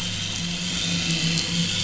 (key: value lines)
label: anthrophony, boat engine
recorder: SoundTrap 500